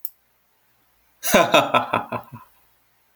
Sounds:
Laughter